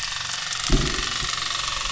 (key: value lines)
label: anthrophony, boat engine
recorder: SoundTrap 300